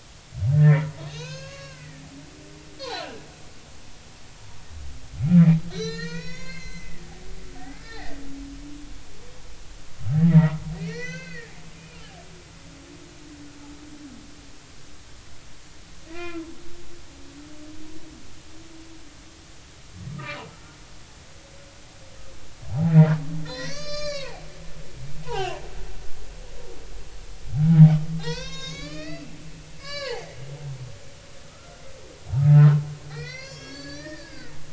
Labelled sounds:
0.5	2.0	humpback whale, 0.93 to 7.1 kHz
2.8	3.1	humpback whale, 3.8 to 4.5 kHz
5.7	7.0	humpback whale, 0.90 to 6.9 kHz
7.7	8.2	humpback whale, 1.6 to 2.0 kHz
10.3	11.5	humpback whale, 1.3 to 6.3 kHz
16.1	16.4	humpback whale, 0.93 to 2.8 kHz
20.1	20.8	humpback whale, 1.2 to 1.5 kHz
22.7	24.5	humpback whale, 0.80 to 7.2 kHz
25.2	25.6	humpback whale, 0.80 to 3.2 kHz
28.2	29.3	humpback whale, 0.80 to 7.1 kHz
29.8	30.4	humpback whale, 0.80 to 5.2 kHz
31.5	31.8	humpback whale, 1.2 to 1.4 kHz
32.5	34.5	humpback whale, 0.99 to 7.2 kHz

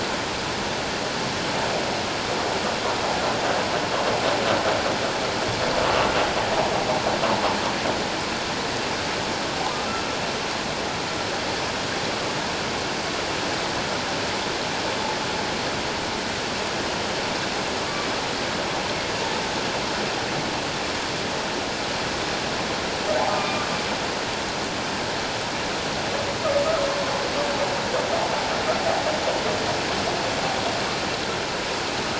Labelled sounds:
23.3	23.7	humpback whale, 1.1 to 2.5 kHz

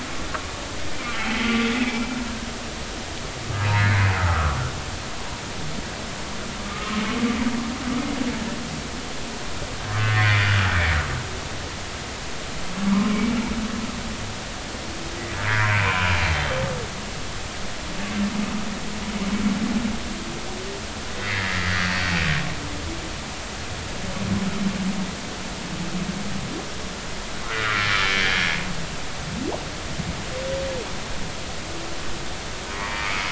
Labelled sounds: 0.9	2.1	humpback whale, 2.0 to 2.7 kHz
3.7	4.6	humpback whale, 1.0 to 2.3 kHz
6.6	7.0	humpback whale, 1.0 to 1.3 kHz
10.1	10.4	humpback whale, 1.8 to 2.2 kHz
12.8	13.3	humpback whale, 0.93 to 2.3 kHz
15.5	16.2	humpback whale, 0.90 to 2.5 kHz
21.2	21.8	humpback whale, 1.6 to 2.2 kHz
27.8	28.9	humpback whale, 1.1 to 3.1 kHz
32.8	33.1	humpback whale, 2.3 to 2.4 kHz

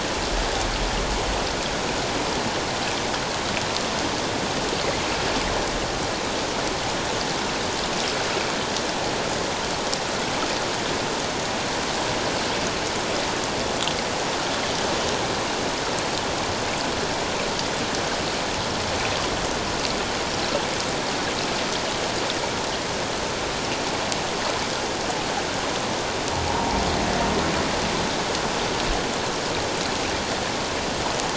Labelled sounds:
26.5	26.8	humpback whale, 0.78 to 1.0 kHz

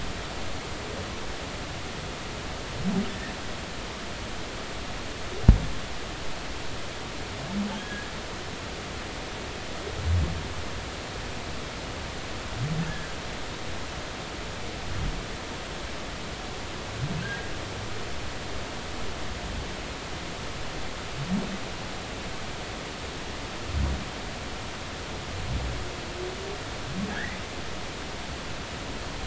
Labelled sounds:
3.1	3.3	humpback whale, 1.7 to 1.9 kHz
7.7	8.1	humpback whale, 1.5 to 1.7 kHz
12.9	13.1	humpback whale, 1.5 to 1.8 kHz
17.2	17.5	humpback whale, 1.5 to 1.7 kHz
27.1	27.4	humpback whale, 1.4 to 2.2 kHz

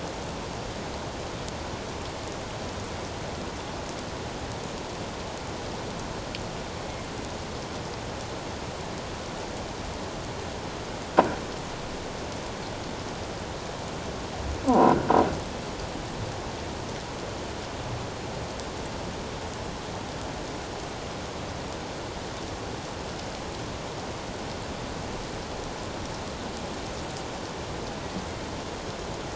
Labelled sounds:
6.8	7.1	killer whale, northern resident, A clan, 2.1 to 2.2 kHz
14.6	15.0	croaking sound likely from a nearby submerged object, 0.88 to 1.1 kHz

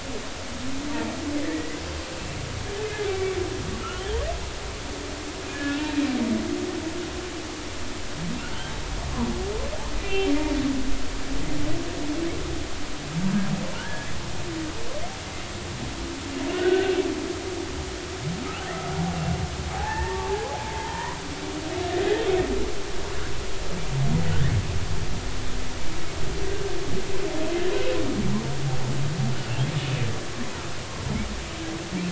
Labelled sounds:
1.4	1.8	humpback whale, 1.7 to 2.1 kHz
3.1	3.4	humpback whale, 2.2 to 2.4 kHz
4.0	4.2	humpback whale, 3.0 to 3.4 kHz
5.5	6.0	humpback whale, 1.6 to 2.8 kHz
10.0	10.3	humpback whale, 2.6 to 2.8 kHz
13.7	14.1	humpback whale, 1.3 to 1.8 kHz
16.5	16.9	humpback whale, 1.4 to 1.7 kHz
19.8	20.2	humpback whale, 1.6 to 1.9 kHz
20.7	21.7	humpback whale, 0.80 to 1.1 kHz

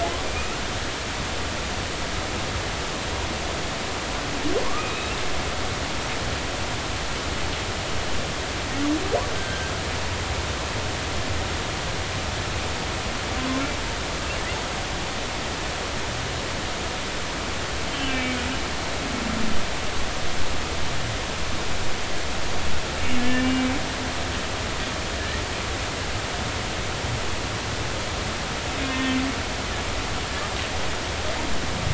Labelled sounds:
0.2	0.6	humpback whale, 2.3 to 2.8 kHz
4.6	4.9	humpback whale, 0.93 to 1.4 kHz
5.8	6.1	humpback whale, 2.4 to 2.7 kHz
9.4	9.7	humpback whale, 1.5 to 1.7 kHz
17.9	18.4	humpback whale, 2.2 to 3.2 kHz
23.2	23.7	humpback whale, 1.7 to 2.9 kHz
28.9	29.2	humpback whale, 1.8 to 1.9 kHz

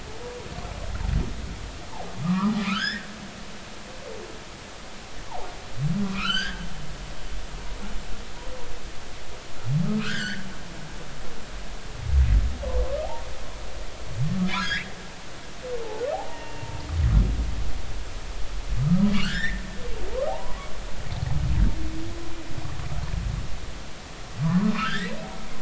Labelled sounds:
2.2	3.1	humpback whale, 0.90 to 3.7 kHz
6.0	6.6	humpback whale, 0.96 to 6.6 kHz
9.9	10.4	humpback whale, 1.2 to 5.1 kHz
14.5	16.7	humpback whale, 0.80 to 3.6 kHz
18.8	19.6	humpback whale, 1.1 to 5.8 kHz
20.3	20.6	humpback whale, 0.80 to 1.1 kHz
24.4	25.2	humpback whale, 0.93 to 3.9 kHz

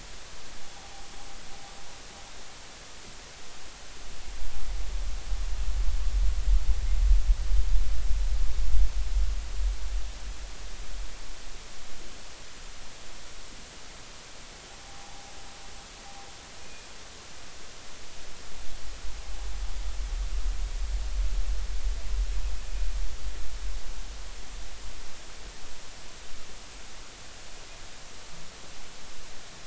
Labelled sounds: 0.8	1.1	humpback whale, 0.80 to 0.86 kHz
16.6	16.9	humpback whale, 2.4 to 2.5 kHz

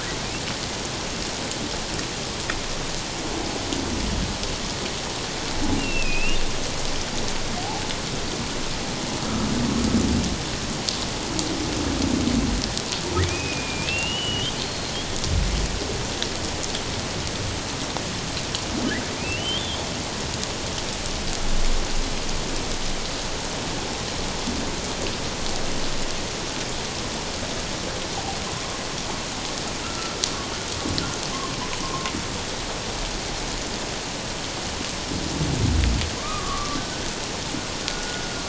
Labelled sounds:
5.8	6.4	humpback whale, 2.4 to 2.9 kHz
13.2	14.9	humpback whale, 2.2 to 4.3 kHz
19.2	19.9	humpback whale, 2.3 to 3.6 kHz
29.8	30.2	humpback whale, 1.2 to 1.5 kHz
31.8	32.1	humpback whale, 0.94 to 1.1 kHz
36.2	37.0	humpback whale, 0.94 to 1.7 kHz
37.8	38.2	humpback whale, 1.4 to 1.5 kHz

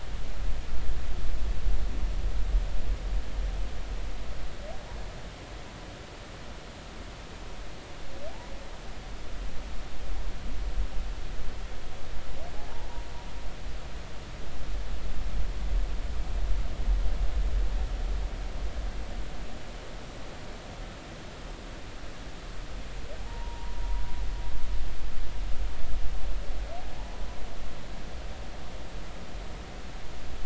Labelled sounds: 23.2	23.8	humpback whale, 0.80 to 1.0 kHz

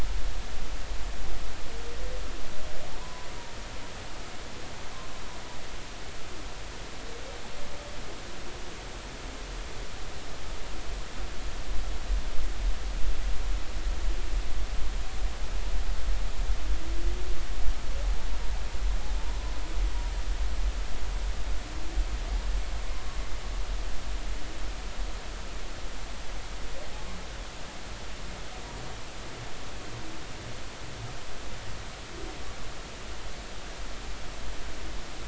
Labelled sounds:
3.0	3.3	humpback whale, 0.90 to 1.1 kHz

